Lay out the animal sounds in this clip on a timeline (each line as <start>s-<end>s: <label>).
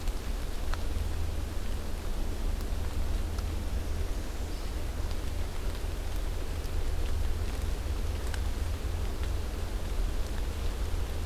3.7s-4.8s: Northern Parula (Setophaga americana)